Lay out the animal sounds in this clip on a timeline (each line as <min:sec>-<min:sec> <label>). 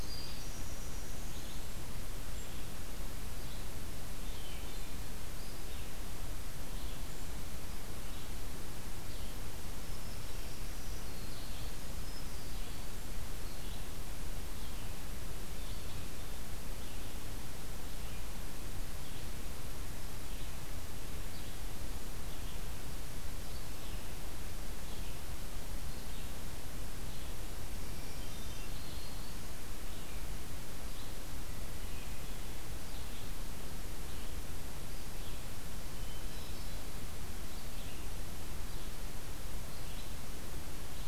0:00.0-0:01.5 Winter Wren (Troglodytes hiemalis)
0:00.0-0:41.1 Red-eyed Vireo (Vireo olivaceus)
0:10.3-0:12.2 Black-throated Green Warbler (Setophaga virens)
0:27.7-0:29.4 Black-throated Green Warbler (Setophaga virens)
0:27.9-0:29.0 Hermit Thrush (Catharus guttatus)
0:35.9-0:36.9 Hermit Thrush (Catharus guttatus)